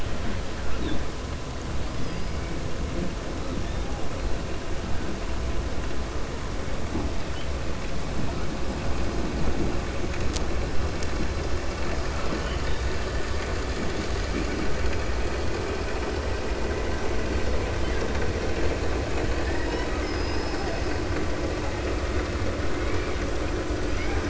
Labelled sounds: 19.3	20.9	killer whale, 0.49 to 6.0 kHz
23.9	24.2	killer whale, 0.79 to 3.0 kHz

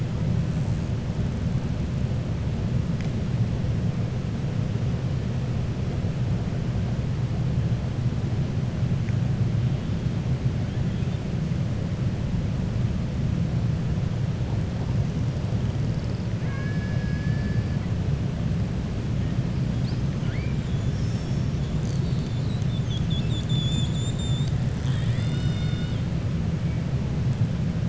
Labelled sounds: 16.4	17.6	killer whale, 1.1 to 2.8 kHz

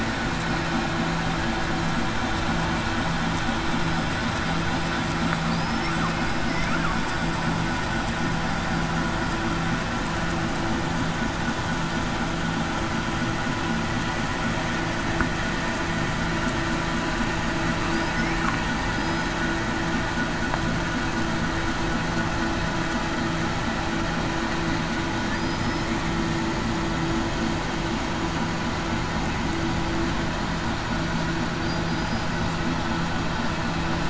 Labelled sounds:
18.9	19.3	killer whale, southern resident, 4.9 to 5.1 kHz
25.4	25.9	killer whale, southern resident, 4.8 to 5.3 kHz
31.8	32.3	killer whale, southern resident, 4.9 to 5.0 kHz

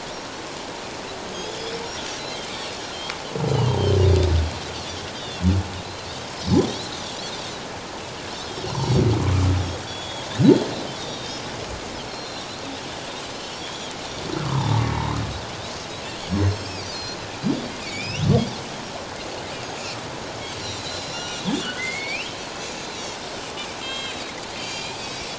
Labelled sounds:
1.3	1.7	Pacific white-sided dolphin, 3.2 to 5.2 kHz
2.8	4.0	Pacific white-sided dolphin, 3.0 to 4.3 kHz
5.2	5.4	Pacific white-sided dolphin, 2.7 to 3.2 kHz
8.7	9.1	Pacific white-sided dolphin, 3.3 to 5.9 kHz
9.9	11.4	Pacific white-sided dolphin, 3.2 to 6.9 kHz
12.0	12.4	Pacific white-sided dolphin, 4.0 to 5.9 kHz
13.3	14.0	Pacific white-sided dolphin, 2.9 to 3.5 kHz
14.4	15.2	humpback whale, 0.81 to 2.3 kHz
16.2	17.2	Pacific white-sided dolphin, 3.2 to 7.8 kHz
17.8	18.2	humpback whale, 2.2 to 3.0 kHz
20.5	22.4	Pacific white-sided dolphin, 1.3 to 7.4 kHz
21.6	21.9	humpback whale, 4.3 to 4.6 kHz
22.8	25.2	Pacific white-sided dolphin, 2.1 to 7.6 kHz

